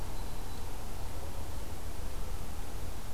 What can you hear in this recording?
Black-throated Green Warbler